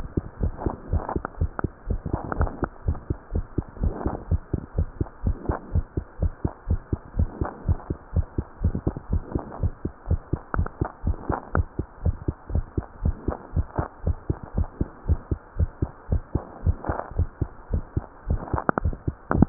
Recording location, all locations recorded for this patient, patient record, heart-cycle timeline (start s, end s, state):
mitral valve (MV)
aortic valve (AV)+pulmonary valve (PV)+tricuspid valve (TV)+mitral valve (MV)
#Age: Adolescent
#Sex: Female
#Height: 119.0 cm
#Weight: 19.6 kg
#Pregnancy status: False
#Murmur: Absent
#Murmur locations: nan
#Most audible location: nan
#Systolic murmur timing: nan
#Systolic murmur shape: nan
#Systolic murmur grading: nan
#Systolic murmur pitch: nan
#Systolic murmur quality: nan
#Diastolic murmur timing: nan
#Diastolic murmur shape: nan
#Diastolic murmur grading: nan
#Diastolic murmur pitch: nan
#Diastolic murmur quality: nan
#Outcome: Normal
#Campaign: 2015 screening campaign
0.00	2.70	unannotated
2.70	2.86	diastole
2.86	2.98	S1
2.98	3.08	systole
3.08	3.18	S2
3.18	3.34	diastole
3.34	3.46	S1
3.46	3.54	systole
3.54	3.66	S2
3.66	3.80	diastole
3.80	3.94	S1
3.94	4.04	systole
4.04	4.14	S2
4.14	4.28	diastole
4.28	4.42	S1
4.42	4.50	systole
4.50	4.62	S2
4.62	4.76	diastole
4.76	4.88	S1
4.88	4.98	systole
4.98	5.08	S2
5.08	5.24	diastole
5.24	5.36	S1
5.36	5.46	systole
5.46	5.58	S2
5.58	5.72	diastole
5.72	5.86	S1
5.86	5.96	systole
5.96	6.04	S2
6.04	6.20	diastole
6.20	6.32	S1
6.32	6.42	systole
6.42	6.52	S2
6.52	6.68	diastole
6.68	6.80	S1
6.80	6.90	systole
6.90	7.00	S2
7.00	7.16	diastole
7.16	7.30	S1
7.30	7.40	systole
7.40	7.50	S2
7.50	7.66	diastole
7.66	7.78	S1
7.78	7.88	systole
7.88	7.98	S2
7.98	8.14	diastole
8.14	8.26	S1
8.26	8.36	systole
8.36	8.46	S2
8.46	8.62	diastole
8.62	8.74	S1
8.74	8.84	systole
8.84	8.94	S2
8.94	9.10	diastole
9.10	9.24	S1
9.24	9.34	systole
9.34	9.44	S2
9.44	9.60	diastole
9.60	9.74	S1
9.74	9.84	systole
9.84	9.94	S2
9.94	10.08	diastole
10.08	10.22	S1
10.22	10.32	systole
10.32	10.42	S2
10.42	10.58	diastole
10.58	10.70	S1
10.70	10.80	systole
10.80	10.90	S2
10.90	11.04	diastole
11.04	11.18	S1
11.18	11.28	systole
11.28	11.38	S2
11.38	11.54	diastole
11.54	11.68	S1
11.68	11.78	systole
11.78	11.88	S2
11.88	12.04	diastole
12.04	12.16	S1
12.16	12.26	systole
12.26	12.36	S2
12.36	12.52	diastole
12.52	12.66	S1
12.66	12.76	systole
12.76	12.86	S2
12.86	13.02	diastole
13.02	13.16	S1
13.16	13.26	systole
13.26	13.36	S2
13.36	13.54	diastole
13.54	13.68	S1
13.68	13.78	systole
13.78	13.88	S2
13.88	14.04	diastole
14.04	14.18	S1
14.18	14.28	systole
14.28	14.38	S2
14.38	14.56	diastole
14.56	14.70	S1
14.70	14.80	systole
14.80	14.90	S2
14.90	15.06	diastole
15.06	15.19	S1
15.19	15.29	systole
15.29	15.40	S2
15.40	15.58	diastole
15.58	15.72	S1
15.72	15.80	systole
15.80	15.92	S2
15.92	16.10	diastole
16.10	16.24	S1
16.24	16.34	systole
16.34	16.44	S2
16.44	16.61	diastole
16.61	19.49	unannotated